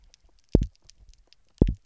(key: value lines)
label: biophony, double pulse
recorder: SoundTrap 300